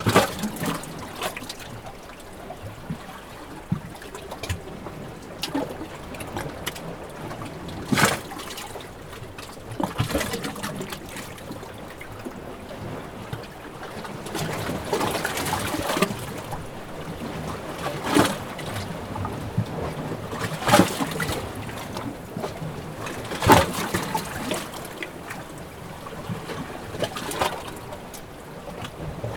Did someone jump into the water?
no